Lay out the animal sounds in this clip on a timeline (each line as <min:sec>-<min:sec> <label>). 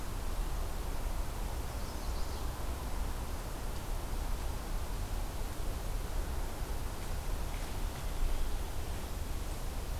0:01.6-0:02.5 Chestnut-sided Warbler (Setophaga pensylvanica)